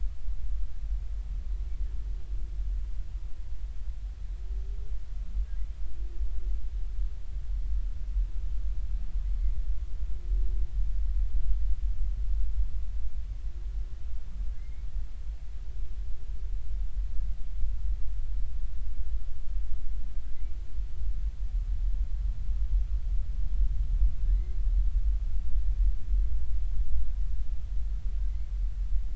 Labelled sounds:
14.6	14.9	humpback whale, 1.9 to 2.3 kHz
28.2	28.5	humpback whale, 2.0 to 2.3 kHz

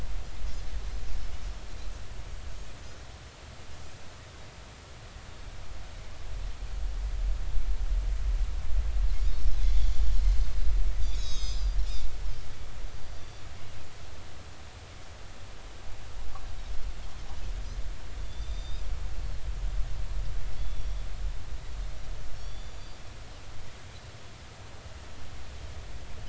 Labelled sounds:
9.3	10.1	Pacific white-sided dolphin, 5.2 to 6.9 kHz
11.0	12.1	Pacific white-sided dolphin, 2.3 to 7.7 kHz
13.0	13.4	Pacific white-sided dolphin, 4.6 to 5.9 kHz
18.2	18.8	Pacific white-sided dolphin, 3.4 to 3.8 kHz
20.6	21.0	Pacific white-sided dolphin, 3.3 to 5.8 kHz
22.4	22.8	Pacific white-sided dolphin, 3.3 to 7.1 kHz

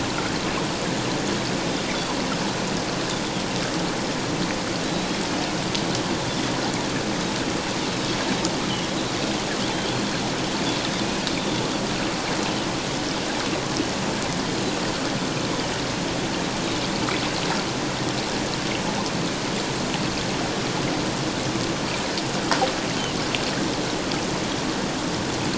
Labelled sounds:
4.8	5.1	Pacific white-sided dolphin, 3.8 to 4.1 kHz
11.0	11.3	Pacific white-sided dolphin, 2.4 to 2.7 kHz

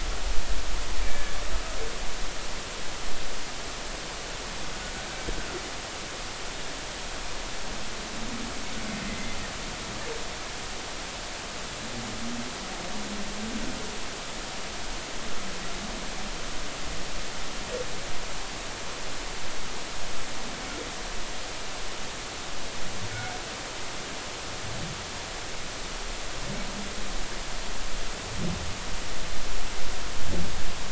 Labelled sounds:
1.1	1.3	humpback whale, 1.6 to 1.8 kHz
23.1	23.4	humpback whale, 2.1 to 2.3 kHz

